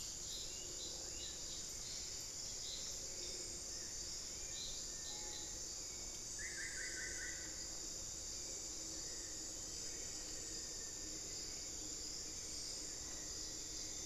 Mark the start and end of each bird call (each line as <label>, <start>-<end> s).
Gray Antwren (Myrmotherula menetriesii), 0.0-1.6 s
Hauxwell's Thrush (Turdus hauxwelli), 0.0-14.1 s
Olivaceous Woodcreeper (Sittasomus griseicapillus), 1.6-3.3 s
Screaming Piha (Lipaugus vociferans), 4.8-5.7 s
Cinereous Tinamou (Crypturellus cinereus), 4.9-5.3 s
Solitary Black Cacique (Cacicus solitarius), 6.2-7.6 s
Black-faced Antthrush (Formicarius analis), 8.9-11.5 s
Elegant Woodcreeper (Xiphorhynchus elegans), 12.4-14.1 s